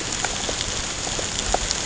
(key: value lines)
label: ambient
recorder: HydroMoth